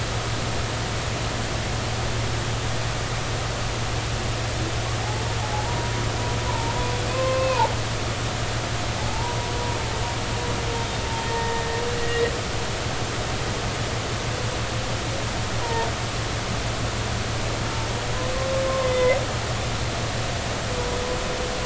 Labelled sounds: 5.4	6.8	humpback whale, 0.80 to 1.1 kHz
7.1	7.7	humpback whale, 0.83 to 2.7 kHz
9.0	9.4	humpback whale, 0.80 to 1.0 kHz
10.8	11.0	humpback whale, 3.6 to 3.7 kHz
11.3	12.3	humpback whale, 1.8 to 2.0 kHz
15.6	15.9	humpback whale, 0.86 to 1.0 kHz
18.7	19.2	humpback whale, 0.96 to 2.1 kHz

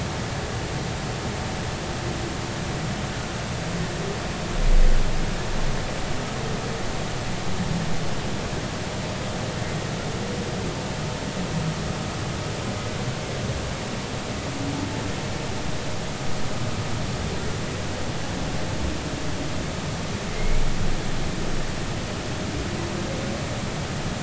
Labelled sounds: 20.3	20.6	humpback whale, 2.0 to 2.4 kHz

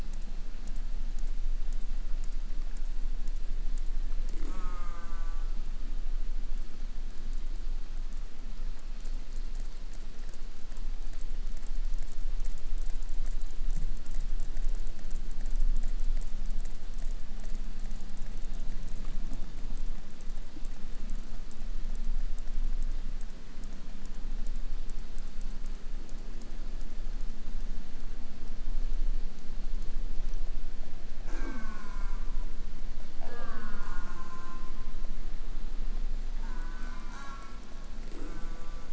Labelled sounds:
4.4	5.7	killer whale, southern resident, J pod, call S04, 0.29 to 8.0 kHz
31.2	32.5	killer whale, southern resident, J pod, call S04, 0.11 to 8.0 kHz
33.2	35.2	killer whale, southern resident, J pod, call S04, 0.25 to 8.0 kHz
36.4	38.9	killer whale, southern resident, J pod, call S04, 0 to 8.0 kHz

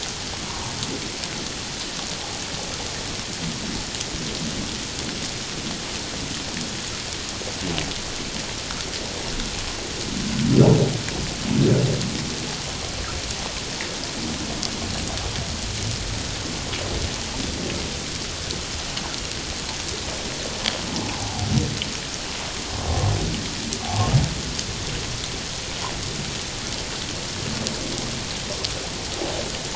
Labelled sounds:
0.5	0.7	humpback whale, 0.88 to 1.2 kHz
21.2	21.5	humpback whale, 0.78 to 0.97 kHz
23.8	24.1	humpback whale, 0.78 to 0.94 kHz

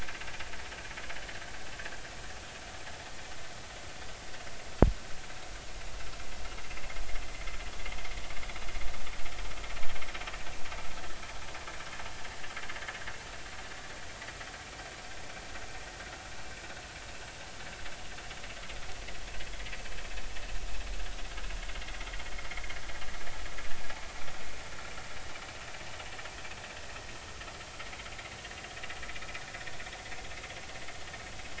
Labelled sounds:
22.5	22.7	vessel noise, 2.0 to 2.3 kHz

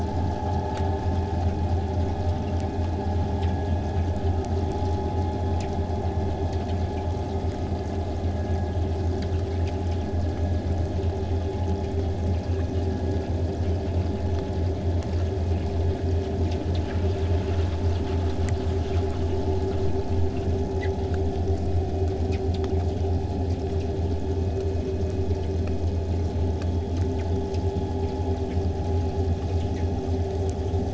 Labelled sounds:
0.0	5.0	vessel noise, 0 to 8.0 kHz
11.5	15.9	killer whale, southern resident, 6.9 to 8.0 kHz

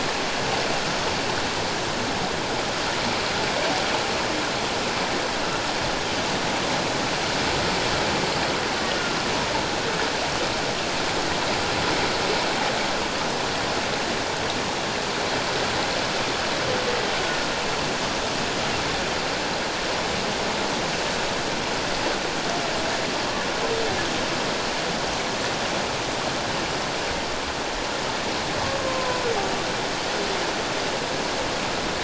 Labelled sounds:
28.8	29.2	humpback whale, 0.97 to 1.1 kHz

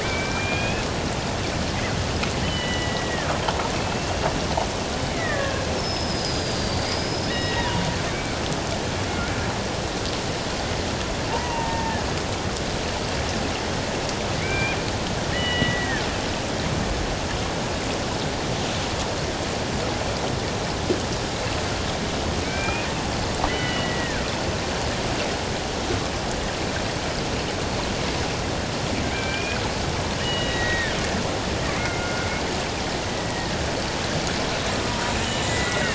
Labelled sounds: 0.0	0.8	killer whale, Bigg's (transient), 1.5 to 3.4 kHz
2.4	3.3	killer whale, Bigg's (transient), 1.6 to 3.1 kHz
3.8	7.8	killer whale, Bigg's (transient), 0.84 to 5.4 kHz
11.3	12.1	killer whale, Bigg's (transient), 0.81 to 1.9 kHz
14.4	14.8	killer whale, Bigg's (transient), 1.5 to 2.5 kHz
15.3	16.0	killer whale, Bigg's (transient), 1.6 to 3.1 kHz
22.4	22.9	killer whale, Bigg's (transient), 1.5 to 2.6 kHz
23.5	24.2	killer whale, Bigg's (transient), 1.4 to 3.1 kHz
29.0	29.6	killer whale, Bigg's (transient), 1.5 to 2.6 kHz
30.2	30.9	killer whale, Bigg's (transient), 1.7 to 3.9 kHz
31.7	32.3	killer whale, Bigg's (transient), 1.4 to 2.4 kHz
33.1	33.5	killer whale, Bigg's (transient), 1.8 to 2.0 kHz
34.7	35.5	killer whale, Bigg's (transient), 0.91 to 3.0 kHz

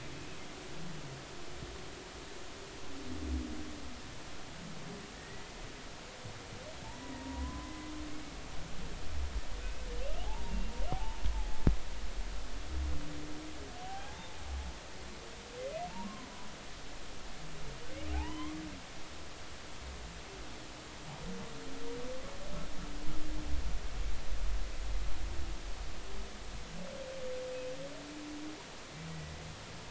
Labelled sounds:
5.1	5.5	humpback whale, 1.7 to 2.0 kHz
7.0	7.9	humpback whale, 0.90 to 2.0 kHz
10.2	10.6	humpback whale, 0.80 to 0.99 kHz
11.3	12.2	humpback whale, 0.80 to 1.0 kHz
13.8	14.3	humpback whale, 0.80 to 0.96 kHz
16.0	16.3	humpback whale, 0.96 to 1.1 kHz
18.1	18.6	humpback whale, 0.80 to 3.2 kHz

